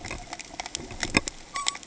{"label": "ambient", "recorder": "HydroMoth"}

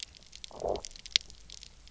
{"label": "biophony, low growl", "recorder": "SoundTrap 300"}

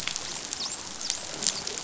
{"label": "biophony, dolphin", "recorder": "SoundTrap 500"}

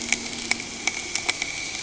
{"label": "anthrophony, boat engine", "recorder": "HydroMoth"}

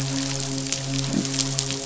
{"label": "biophony", "recorder": "SoundTrap 500"}
{"label": "biophony, midshipman", "recorder": "SoundTrap 500"}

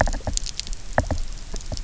{"label": "biophony, knock", "recorder": "SoundTrap 300"}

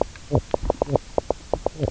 {"label": "biophony, knock croak", "recorder": "SoundTrap 300"}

